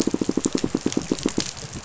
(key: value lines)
label: biophony, pulse
recorder: SoundTrap 500